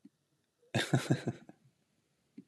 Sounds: Laughter